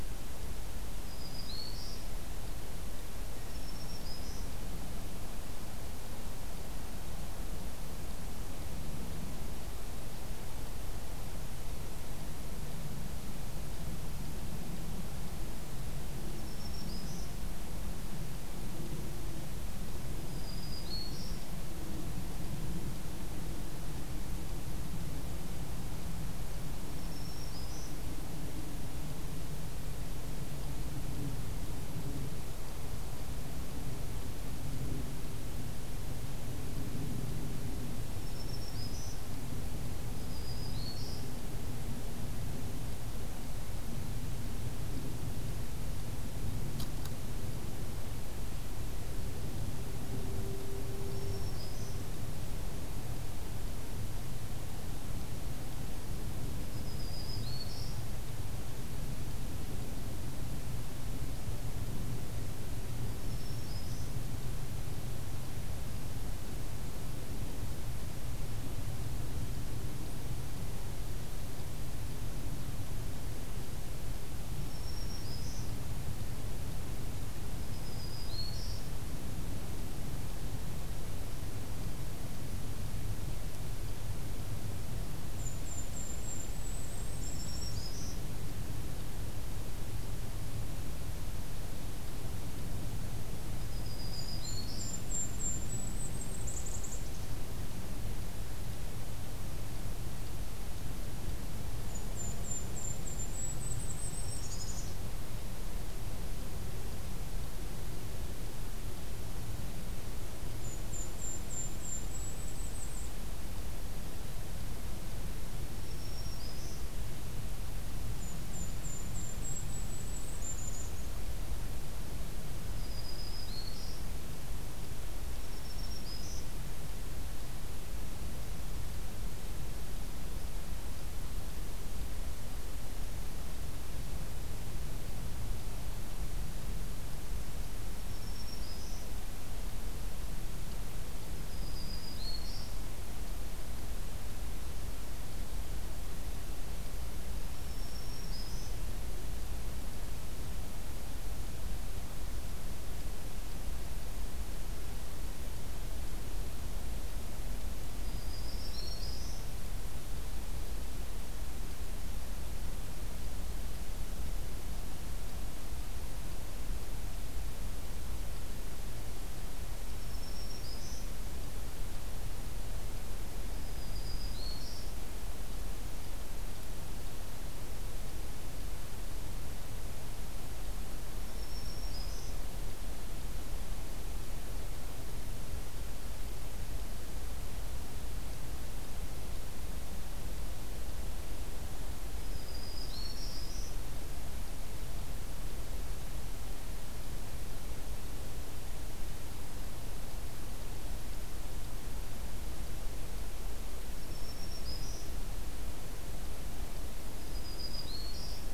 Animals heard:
Black-throated Green Warbler (Setophaga virens), Golden-crowned Kinglet (Regulus satrapa)

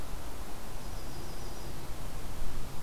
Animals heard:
Yellow-rumped Warbler (Setophaga coronata)

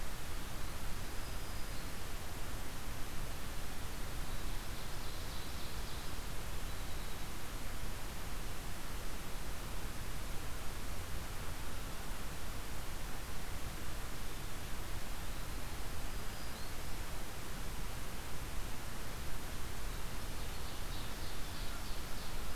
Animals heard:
Black-throated Green Warbler (Setophaga virens), Eastern Wood-Pewee (Contopus virens), Winter Wren (Troglodytes hiemalis), Ovenbird (Seiurus aurocapilla)

